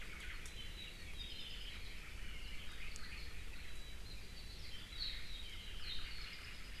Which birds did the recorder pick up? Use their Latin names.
Myadestes obscurus, Himatione sanguinea, Drepanis coccinea